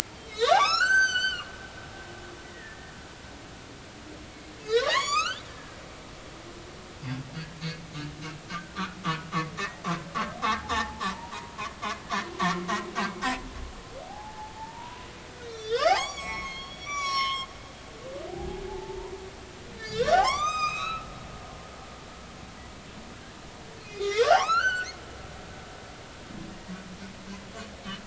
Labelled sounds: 0.2	1.5	humpback whale, 0.80 to 7.8 kHz
2.4	2.9	humpback whale, 1.7 to 2.1 kHz
4.6	5.8	humpback whale, 0.80 to 7.3 kHz
8.5	8.8	humpback whale, 1.4 to 1.7 kHz
9.6	10.1	humpback whale, 0.99 to 2.0 kHz
10.7	11.5	humpback whale, 0.80 to 5.5 kHz
14.1	15.1	humpback whale, 0.80 to 1.0 kHz
15.4	17.5	humpback whale, 0.80 to 8.0 kHz
18.3	19.1	humpback whale, 0.80 to 1.0 kHz
19.8	21.1	humpback whale, 0.80 to 8.0 kHz
23.8	24.9	humpback whale, 0.80 to 4.6 kHz
26.5	26.7	humpback whale, 1.8 to 1.9 kHz

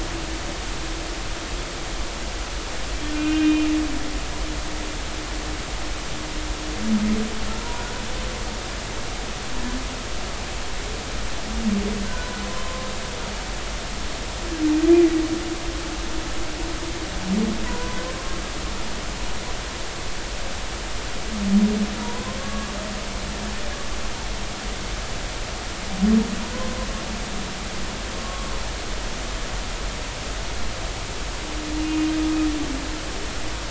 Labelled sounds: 3.1	3.7	humpback whale, 1.4 to 2.8 kHz
7.6	7.9	humpback whale, 0.90 to 1.1 kHz
12.1	12.9	humpback whale, 0.99 to 1.6 kHz
17.6	18.0	humpback whale, 0.93 to 1.1 kHz
22.0	22.7	humpback whale, 0.90 to 1.2 kHz
28.2	28.5	humpback whale, 1.1 to 1.2 kHz
31.8	32.1	humpback whale, 2.8 to 2.9 kHz

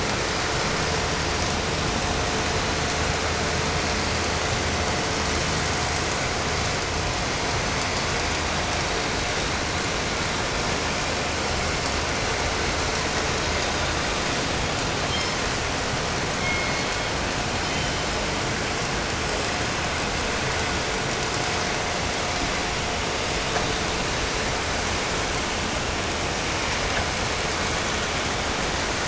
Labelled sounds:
14.9	15.9	killer whale, southern resident, call S16, 1.3 to 7.0 kHz
16.2	18.3	killer whale, southern resident, call S16, 1.8 to 6.5 kHz

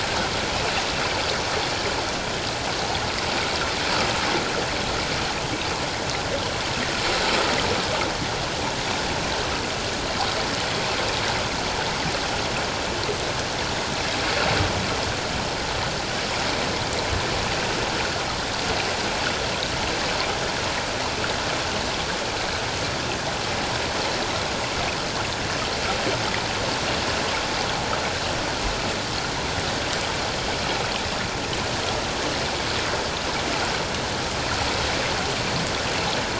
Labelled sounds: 0.5	0.8	water noise, 2.4 to 2.8 kHz

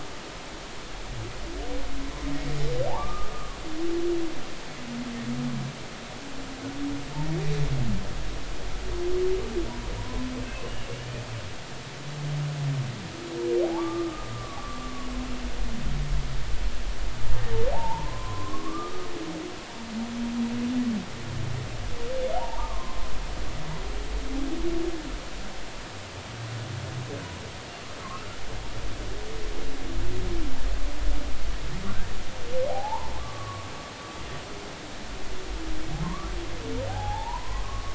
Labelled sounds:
2.9	3.6	humpback whale, 0.80 to 1.3 kHz
10.0	10.7	humpback whale, 0.93 to 2.8 kHz
13.6	15.1	humpback whale, 0.80 to 1.3 kHz
17.7	19.1	humpback whale, 0.80 to 1.3 kHz
22.3	23.1	humpback whale, 0.80 to 1.3 kHz
28.0	28.3	humpback whale, 0.99 to 1.4 kHz
32.7	33.7	humpback whale, 0.80 to 1.2 kHz
36.0	37.9	humpback whale, 0.80 to 1.4 kHz

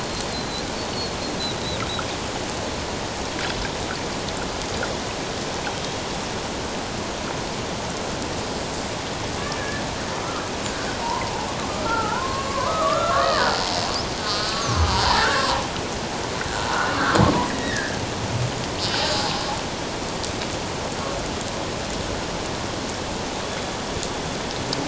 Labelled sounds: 0.3	0.6	killer whale, Bigg's (transient), 3.9 to 4.4 kHz
5.8	6.0	killer whale, Bigg's (transient), 3.1 to 3.3 kHz
9.4	9.8	killer whale, Bigg's (transient), 1.6 to 1.8 kHz
10.7	11.3	killer whale, Bigg's (transient), 0.88 to 1.7 kHz
11.8	13.7	killer whale, Bigg's (transient), 0.81 to 2.0 kHz
14.2	15.6	killer whale, Bigg's (transient), 0.91 to 4.8 kHz
17.4	18.0	killer whale, Bigg's (transient), 1.5 to 2.0 kHz
23.4	23.8	killer whale, Bigg's (transient), 3.3 to 3.5 kHz

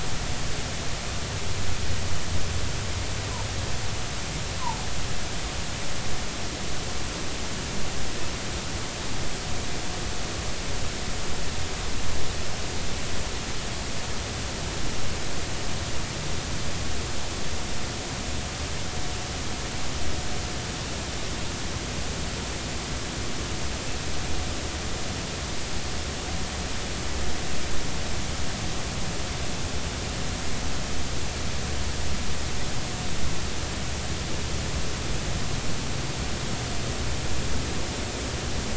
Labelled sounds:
4.6	4.8	humpback whale, 0.80 to 1.1 kHz

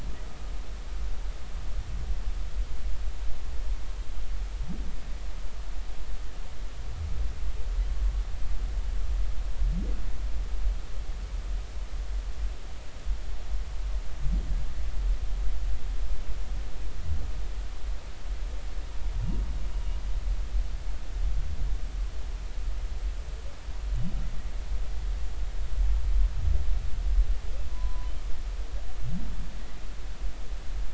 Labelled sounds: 27.7	28.1	humpback whale, 0.93 to 1.1 kHz

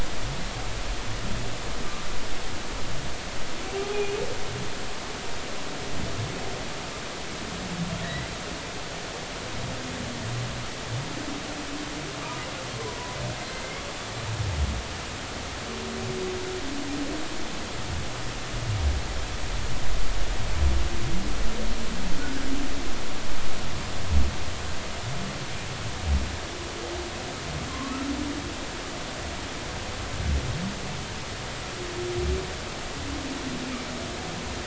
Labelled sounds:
3.7	4.2	humpback whale, 0.80 to 2.6 kHz
8.0	8.3	humpback whale, 1.6 to 2.0 kHz
27.7	28.0	humpback whale, 0.99 to 1.2 kHz

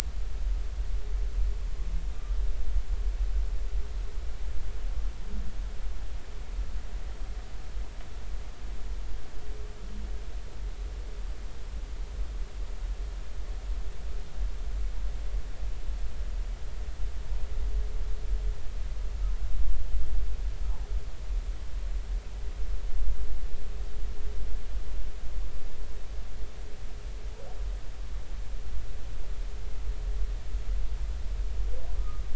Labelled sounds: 32.0	32.2	humpback whale, 1.1 to 1.3 kHz

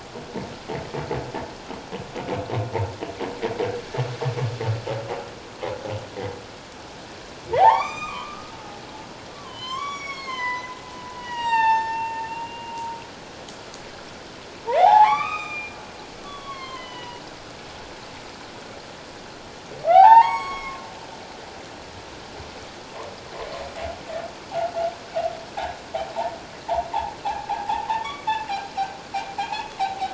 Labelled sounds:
7.5	8.5	humpback whale, 0.78 to 7.4 kHz
9.3	10.7	humpback whale, 0.91 to 8.0 kHz
11.1	12.8	humpback whale, 0.78 to 7.6 kHz
14.8	15.8	humpback whale, 0.78 to 6.2 kHz
16.2	17.2	humpback whale, 0.91 to 4.4 kHz
19.9	20.8	humpback whale, 0.78 to 7.8 kHz
27.5	28.3	humpback whale, 0.78 to 3.5 kHz
29.4	29.7	humpback whale, 2.3 to 2.8 kHz

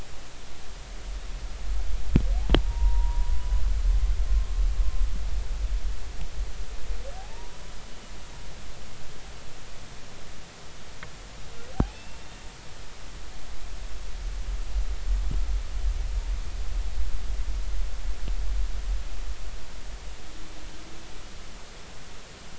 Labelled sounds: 2.6	3.3	humpback whale, 0.90 to 1.1 kHz
7.2	7.5	humpback whale, 0.80 to 0.99 kHz
11.9	12.3	humpback whale, 2.5 to 2.8 kHz

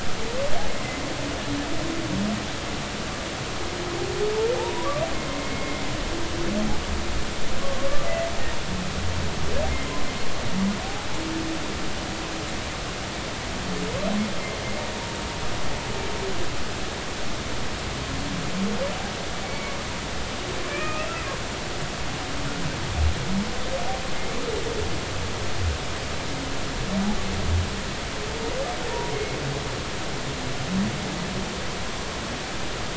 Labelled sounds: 5.4	5.9	humpback whale, 0.80 to 2.2 kHz
7.8	8.1	humpback whale, 1.1 to 1.2 kHz
9.7	10.0	humpback whale, 2.0 to 2.2 kHz
19.4	19.8	humpback whale, 2.1 to 2.3 kHz
20.7	21.1	humpback whale, 1.2 to 2.8 kHz
28.9	29.4	humpback whale, 0.86 to 2.2 kHz

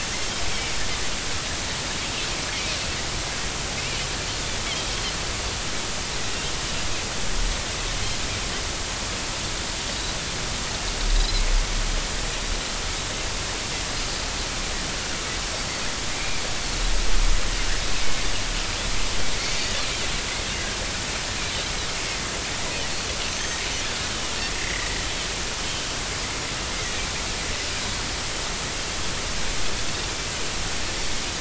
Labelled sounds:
0.5	0.8	Pacific white-sided dolphin, 2.1 to 2.4 kHz
11.2	11.4	Pacific white-sided dolphin, 3.9 to 4.2 kHz
16.2	16.4	Pacific white-sided dolphin, 2.1 to 2.5 kHz
18.0	18.3	Pacific white-sided dolphin, 2.0 to 2.3 kHz
23.3	23.6	Pacific white-sided dolphin, 6.0 to 6.4 kHz
24.6	24.9	Pacific white-sided dolphin, 1.9 to 2.1 kHz

